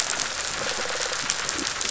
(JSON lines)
{"label": "biophony, rattle response", "recorder": "SoundTrap 500"}